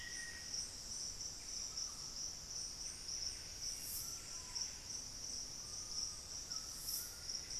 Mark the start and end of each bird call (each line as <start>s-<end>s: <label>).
0.0s-0.5s: Black-faced Antthrush (Formicarius analis)
0.0s-7.6s: Buff-breasted Wren (Cantorchilus leucotis)
1.4s-7.6s: White-throated Toucan (Ramphastos tucanus)
4.2s-5.0s: Screaming Piha (Lipaugus vociferans)
5.5s-6.2s: unidentified bird
6.4s-7.6s: Solitary Black Cacique (Cacicus solitarius)